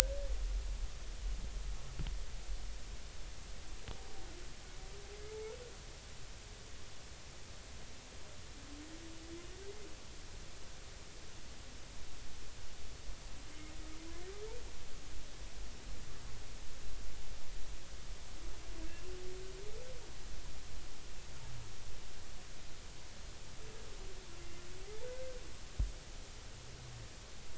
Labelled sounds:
25.0	25.4	humpback whale, 1.4 to 1.6 kHz

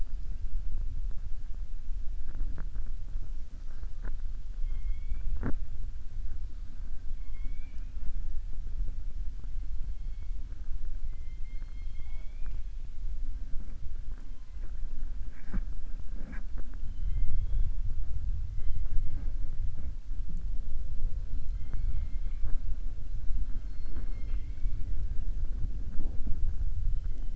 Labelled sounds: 11.0	12.6	killer whale, southern resident, 0.63 to 4.3 kHz

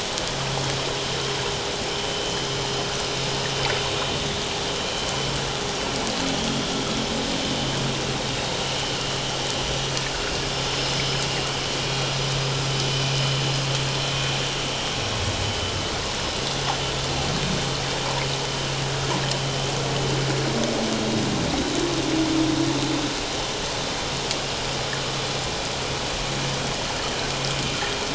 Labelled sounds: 4.4	4.6	vessel noise, 3.1 to 3.2 kHz
9.6	9.9	vessel noise, 5.8 to 5.9 kHz

